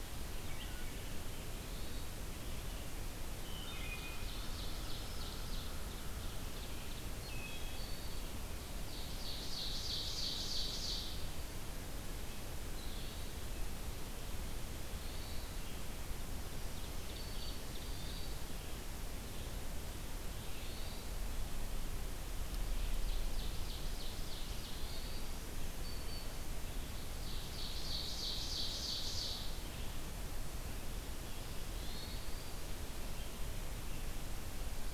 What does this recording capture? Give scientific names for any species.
Vireo olivaceus, Catharus guttatus, Hylocichla mustelina, Seiurus aurocapilla, Setophaga virens